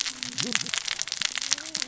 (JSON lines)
{"label": "biophony, cascading saw", "recorder": "SoundTrap 600 or HydroMoth"}